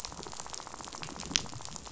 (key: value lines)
label: biophony, rattle
recorder: SoundTrap 500